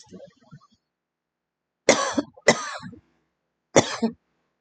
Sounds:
Cough